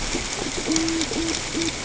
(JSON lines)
{"label": "ambient", "recorder": "HydroMoth"}